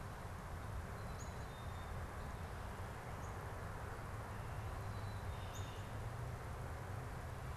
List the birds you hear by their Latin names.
Poecile atricapillus, Cardinalis cardinalis